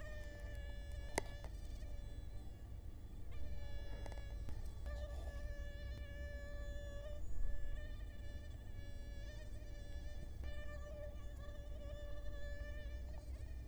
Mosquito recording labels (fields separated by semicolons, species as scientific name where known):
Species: Culex quinquefasciatus; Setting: cup